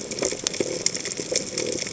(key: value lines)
label: biophony
recorder: HydroMoth